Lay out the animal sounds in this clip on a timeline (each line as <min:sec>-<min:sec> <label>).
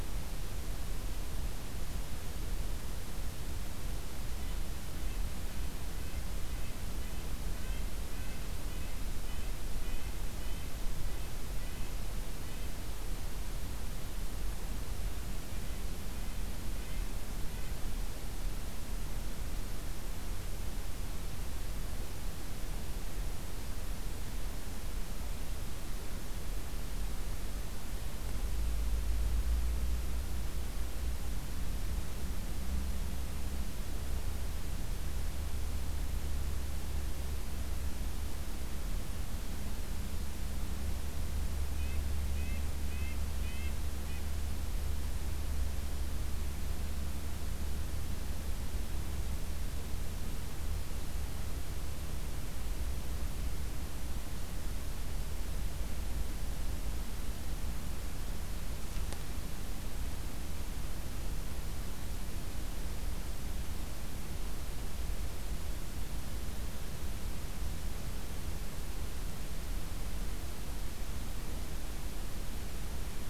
0:04.1-0:13.2 Red-breasted Nuthatch (Sitta canadensis)
0:15.3-0:17.1 Red-breasted Nuthatch (Sitta canadensis)
0:41.5-0:44.6 Red-breasted Nuthatch (Sitta canadensis)